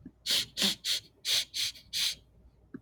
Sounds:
Sniff